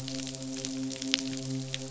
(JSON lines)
{"label": "biophony, midshipman", "recorder": "SoundTrap 500"}